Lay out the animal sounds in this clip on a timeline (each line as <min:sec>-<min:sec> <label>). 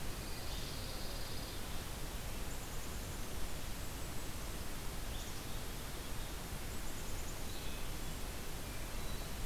0:00.1-0:01.7 Pine Warbler (Setophaga pinus)
0:02.4-0:03.5 Black-capped Chickadee (Poecile atricapillus)
0:03.3-0:04.7 Golden-crowned Kinglet (Regulus satrapa)
0:05.2-0:07.6 Black-capped Chickadee (Poecile atricapillus)
0:07.4-0:09.3 Hermit Thrush (Catharus guttatus)